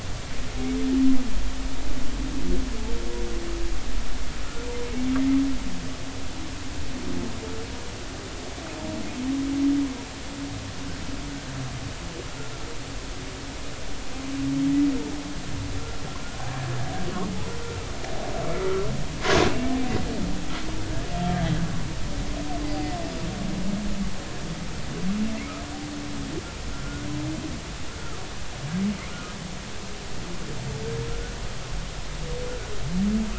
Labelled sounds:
26.7	27.1	humpback whale, 1.3 to 1.5 kHz
28.0	28.2	humpback whale, 1.1 to 1.4 kHz

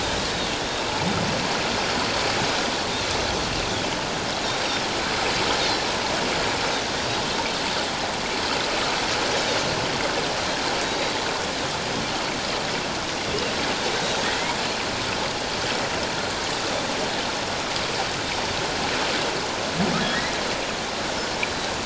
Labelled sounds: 7.0	7.2	Pacific white-sided dolphin, 4.6 to 4.9 kHz
10.8	11.1	Pacific white-sided dolphin, 3.7 to 3.9 kHz
20.0	20.3	humpback whale, 1.6 to 2.1 kHz
21.4	21.7	Pacific white-sided dolphin, 3.8 to 4.1 kHz

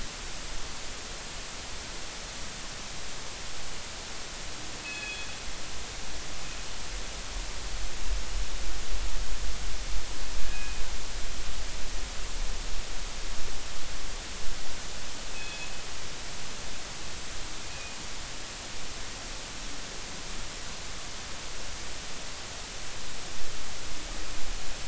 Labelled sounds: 4.8	5.3	killer whale, northern resident, G clan, call N24ii, 1.6 to 3.5 kHz
10.4	10.8	killer whale, northern resident, G clan, call N24ii, 1.5 to 2.6 kHz
15.3	15.7	killer whale, northern resident, G clan, call N24ii, 2.5 to 3.5 kHz
17.7	18.0	killer whale, northern resident, G clan, call N24ii, 2.4 to 2.5 kHz

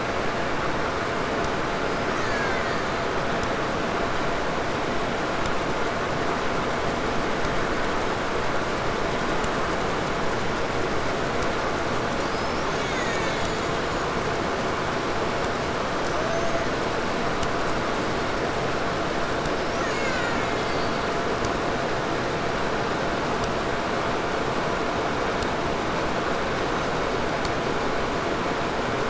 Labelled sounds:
1.8	3.7	killer whale, Bigg's (transient), 0.98 to 8.0 kHz
11.9	14.1	killer whale, Bigg's (transient), 1.1 to 7.4 kHz
15.9	16.9	killer whale, 0.27 to 6.7 kHz
19.3	21.4	killer whale, Bigg's (transient), 0.72 to 7.3 kHz

